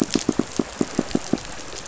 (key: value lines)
label: biophony, pulse
recorder: SoundTrap 500